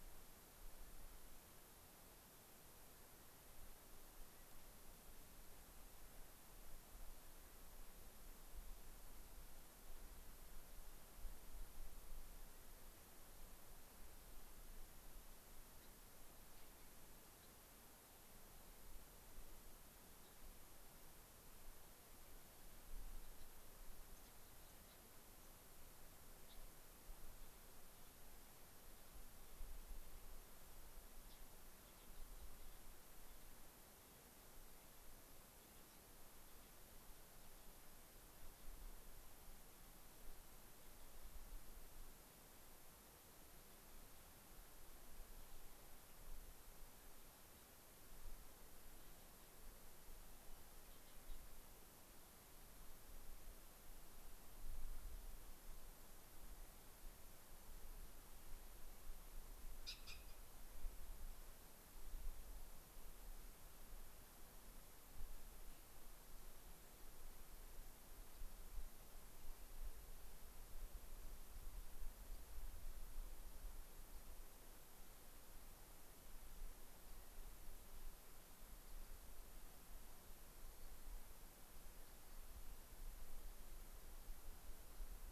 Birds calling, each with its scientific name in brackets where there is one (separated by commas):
unidentified bird, Gray-crowned Rosy-Finch (Leucosticte tephrocotis), Rock Wren (Salpinctes obsoletus)